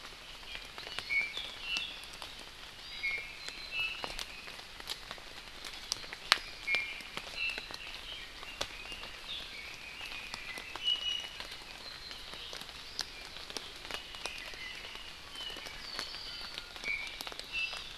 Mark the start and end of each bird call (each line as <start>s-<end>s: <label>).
1.1s-2.1s: Iiwi (Drepanis coccinea)
2.7s-3.2s: Hawaii Amakihi (Chlorodrepanis virens)
3.0s-4.1s: Iiwi (Drepanis coccinea)
6.6s-7.0s: Iiwi (Drepanis coccinea)
7.3s-7.6s: Iiwi (Drepanis coccinea)
7.8s-10.7s: Red-billed Leiothrix (Leiothrix lutea)
10.7s-11.4s: Iiwi (Drepanis coccinea)
13.8s-15.2s: Iiwi (Drepanis coccinea)
15.2s-16.6s: Apapane (Himatione sanguinea)
16.2s-17.2s: Iiwi (Drepanis coccinea)
17.5s-17.8s: Iiwi (Drepanis coccinea)
17.5s-17.9s: Hawaii Amakihi (Chlorodrepanis virens)